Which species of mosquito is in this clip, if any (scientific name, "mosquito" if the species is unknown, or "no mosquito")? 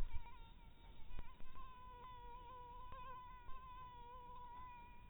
mosquito